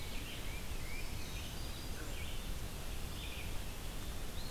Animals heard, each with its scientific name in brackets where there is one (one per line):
Red-eyed Vireo (Vireo olivaceus)
Black-throated Green Warbler (Setophaga virens)
Tufted Titmouse (Baeolophus bicolor)